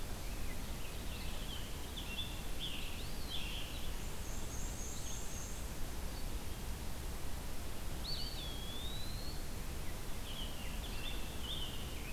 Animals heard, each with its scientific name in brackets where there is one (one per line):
Rose-breasted Grosbeak (Pheucticus ludovicianus)
Black-and-white Warbler (Mniotilta varia)
Eastern Wood-Pewee (Contopus virens)
Scarlet Tanager (Piranga olivacea)
Red-eyed Vireo (Vireo olivaceus)